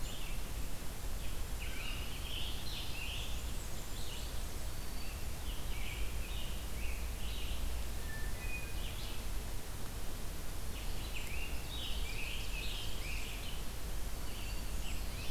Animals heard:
Scarlet Tanager (Piranga olivacea), Hermit Thrush (Catharus guttatus), Ovenbird (Seiurus aurocapilla), Blackburnian Warbler (Setophaga fusca), Red-eyed Vireo (Vireo olivaceus)

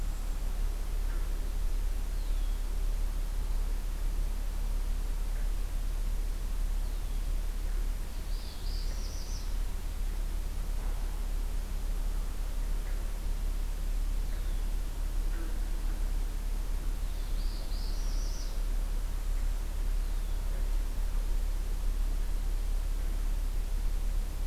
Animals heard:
Northern Parula (Setophaga americana), Cedar Waxwing (Bombycilla cedrorum), Red-winged Blackbird (Agelaius phoeniceus)

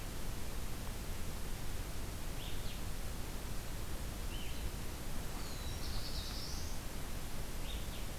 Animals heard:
Black-throated Blue Warbler (Setophaga caerulescens), Blue-headed Vireo (Vireo solitarius), Brown Creeper (Certhia americana)

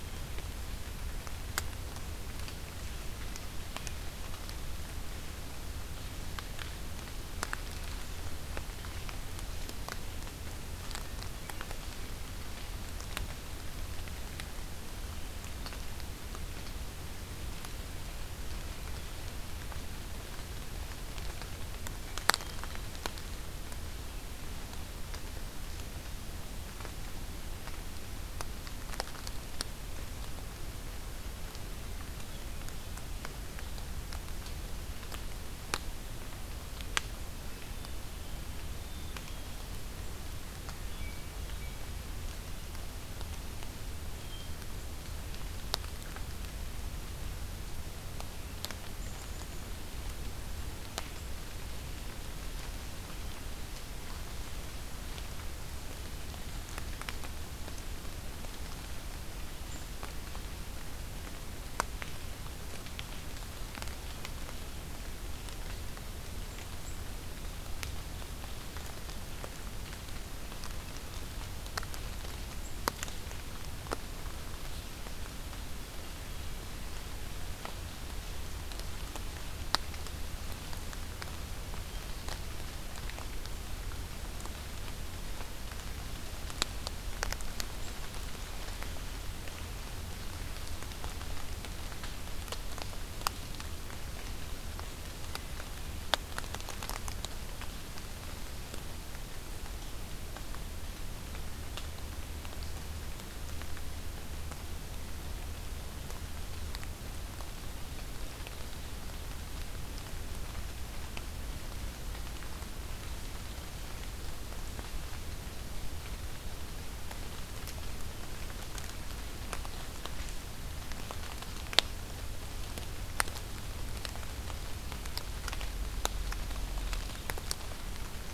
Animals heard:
Hermit Thrush (Catharus guttatus), Black-capped Chickadee (Poecile atricapillus)

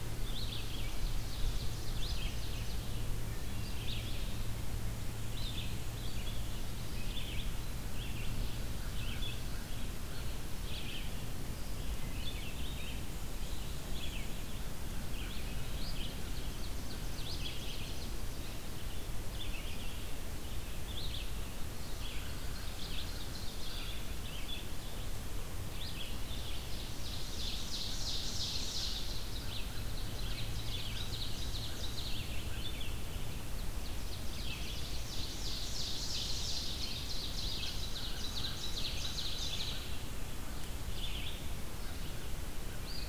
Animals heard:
Ovenbird (Seiurus aurocapilla), Hermit Thrush (Catharus guttatus), American Crow (Corvus brachyrhynchos), Red-eyed Vireo (Vireo olivaceus), Black-and-white Warbler (Mniotilta varia)

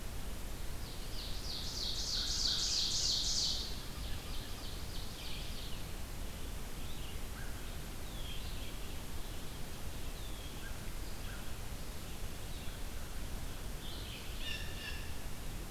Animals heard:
Ovenbird (Seiurus aurocapilla), Red-eyed Vireo (Vireo olivaceus), Blue Jay (Cyanocitta cristata), American Crow (Corvus brachyrhynchos)

